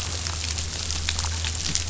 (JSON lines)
{"label": "anthrophony, boat engine", "recorder": "SoundTrap 500"}